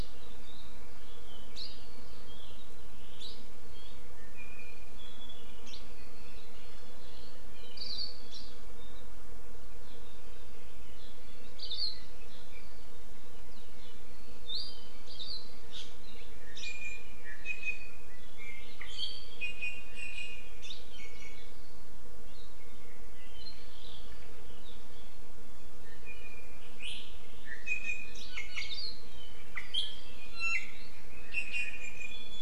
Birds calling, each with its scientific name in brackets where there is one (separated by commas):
Apapane (Himatione sanguinea), Iiwi (Drepanis coccinea), Hawaii Akepa (Loxops coccineus)